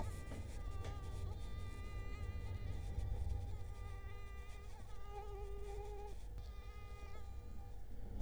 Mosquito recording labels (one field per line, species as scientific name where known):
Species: Culex quinquefasciatus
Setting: cup